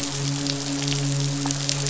{"label": "biophony, midshipman", "recorder": "SoundTrap 500"}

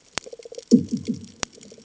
{"label": "anthrophony, bomb", "recorder": "HydroMoth"}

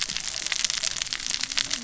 {"label": "biophony, cascading saw", "recorder": "SoundTrap 600 or HydroMoth"}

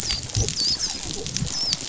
{"label": "biophony, dolphin", "recorder": "SoundTrap 500"}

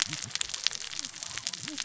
{"label": "biophony, cascading saw", "recorder": "SoundTrap 600 or HydroMoth"}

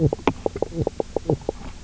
{"label": "biophony, knock croak", "recorder": "SoundTrap 300"}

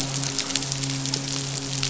{"label": "biophony, midshipman", "recorder": "SoundTrap 500"}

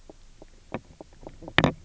{"label": "biophony, knock croak", "recorder": "SoundTrap 300"}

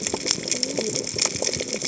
{"label": "biophony, cascading saw", "recorder": "HydroMoth"}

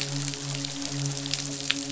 {"label": "biophony, midshipman", "recorder": "SoundTrap 500"}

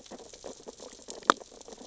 {"label": "biophony, sea urchins (Echinidae)", "recorder": "SoundTrap 600 or HydroMoth"}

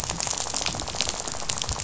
{"label": "biophony, rattle", "recorder": "SoundTrap 500"}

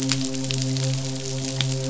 {"label": "biophony, midshipman", "recorder": "SoundTrap 500"}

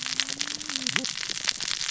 {"label": "biophony, cascading saw", "recorder": "SoundTrap 600 or HydroMoth"}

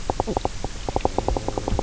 {"label": "biophony, knock croak", "recorder": "SoundTrap 300"}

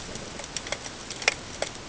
{"label": "ambient", "recorder": "HydroMoth"}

